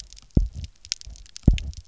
{"label": "biophony, double pulse", "recorder": "SoundTrap 300"}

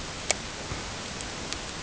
{"label": "ambient", "recorder": "HydroMoth"}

